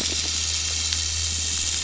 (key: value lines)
label: biophony
recorder: SoundTrap 500

label: anthrophony, boat engine
recorder: SoundTrap 500